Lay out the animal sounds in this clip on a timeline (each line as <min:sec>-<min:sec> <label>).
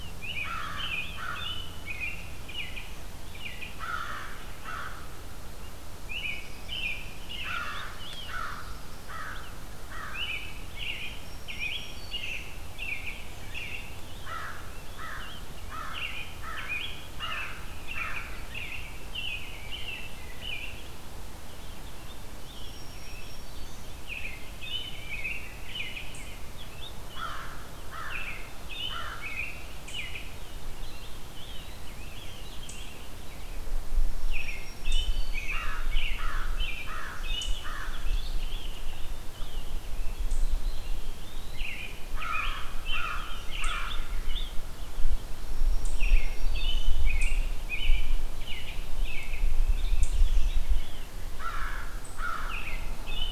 0:00.0-0:03.8 American Robin (Turdus migratorius)
0:00.4-0:01.6 American Crow (Corvus brachyrhynchos)
0:03.7-0:05.0 American Crow (Corvus brachyrhynchos)
0:06.0-0:08.5 American Robin (Turdus migratorius)
0:07.4-0:10.2 American Crow (Corvus brachyrhynchos)
0:10.0-0:14.1 American Robin (Turdus migratorius)
0:10.9-0:12.6 Black-throated Green Warbler (Setophaga virens)
0:14.0-0:18.8 Rose-breasted Grosbeak (Pheucticus ludovicianus)
0:14.1-0:18.6 American Crow (Corvus brachyrhynchos)
0:15.8-0:20.9 American Robin (Turdus migratorius)
0:21.2-0:26.9 Rose-breasted Grosbeak (Pheucticus ludovicianus)
0:22.2-0:24.0 Black-throated Green Warbler (Setophaga virens)
0:23.9-0:26.9 American Robin (Turdus migratorius)
0:27.1-0:29.4 American Crow (Corvus brachyrhynchos)
0:28.0-0:30.7 American Robin (Turdus migratorius)
0:30.7-0:33.6 Rose-breasted Grosbeak (Pheucticus ludovicianus)
0:30.7-0:31.9 Eastern Wood-Pewee (Contopus virens)
0:34.0-0:35.8 Black-throated Green Warbler (Setophaga virens)
0:34.2-0:37.9 American Robin (Turdus migratorius)
0:35.4-0:38.1 American Crow (Corvus brachyrhynchos)
0:37.8-0:41.3 Rose-breasted Grosbeak (Pheucticus ludovicianus)
0:40.5-0:41.9 Eastern Wood-Pewee (Contopus virens)
0:41.4-0:44.6 American Robin (Turdus migratorius)
0:42.2-0:44.0 American Crow (Corvus brachyrhynchos)
0:45.2-0:47.0 Black-throated Green Warbler (Setophaga virens)
0:45.8-0:51.2 American Robin (Turdus migratorius)
0:51.2-0:52.7 American Crow (Corvus brachyrhynchos)
0:52.4-0:53.3 American Robin (Turdus migratorius)